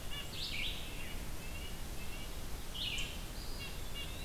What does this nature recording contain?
Red-eyed Vireo, Red-breasted Nuthatch, Eastern Wood-Pewee